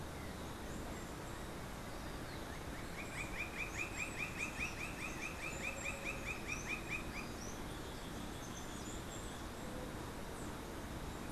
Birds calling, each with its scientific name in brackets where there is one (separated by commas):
Roadside Hawk (Rupornis magnirostris)